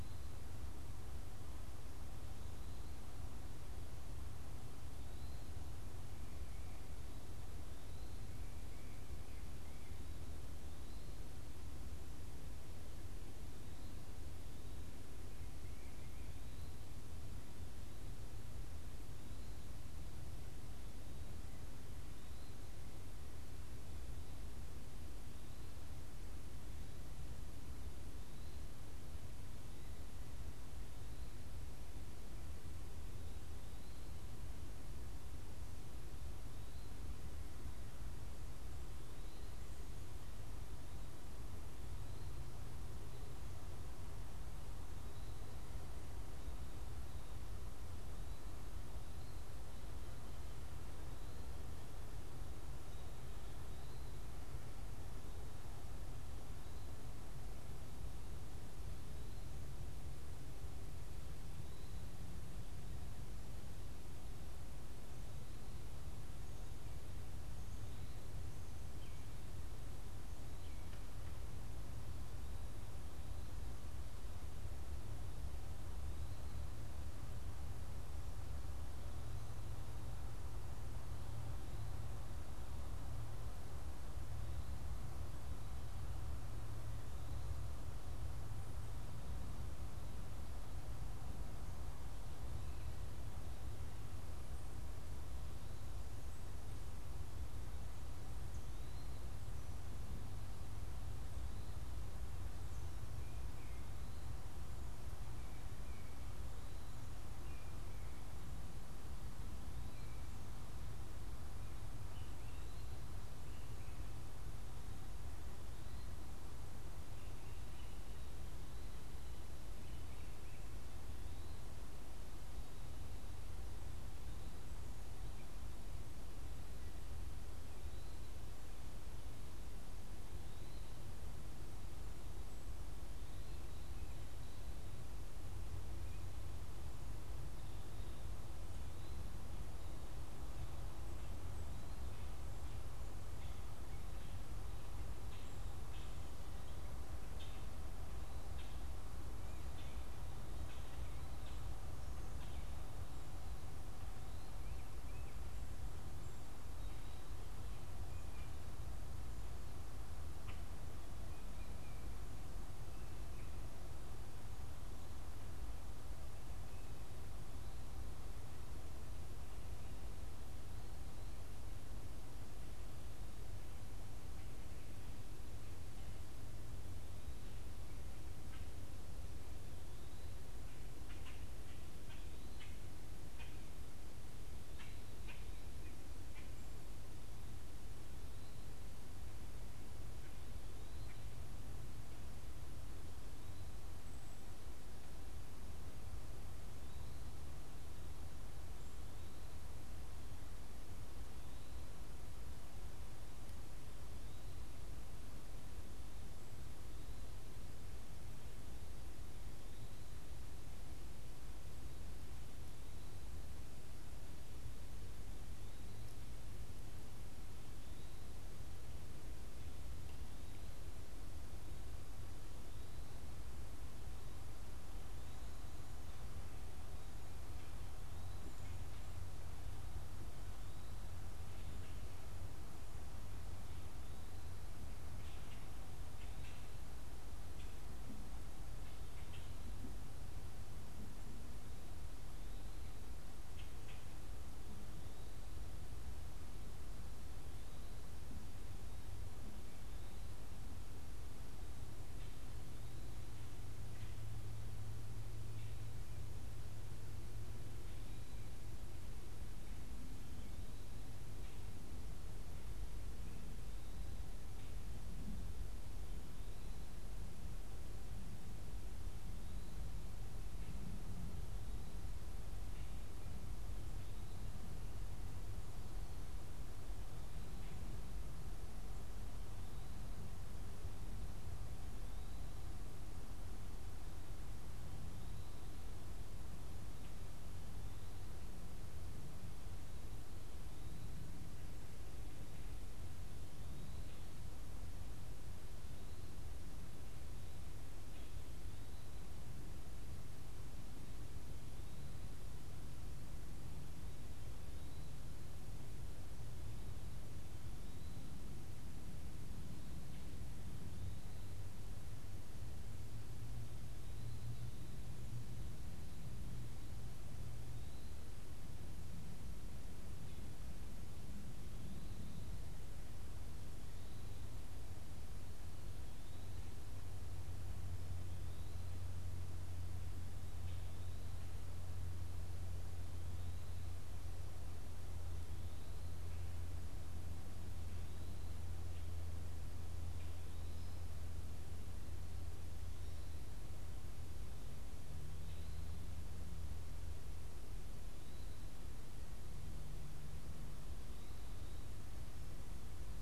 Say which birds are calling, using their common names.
unidentified bird, Common Grackle, Tufted Titmouse